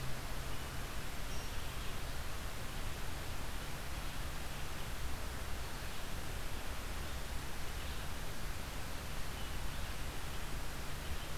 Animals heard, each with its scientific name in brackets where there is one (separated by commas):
Red-eyed Vireo (Vireo olivaceus)